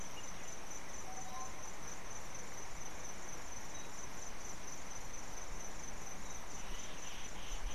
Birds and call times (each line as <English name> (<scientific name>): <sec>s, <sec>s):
Tropical Boubou (Laniarius major): 1.2s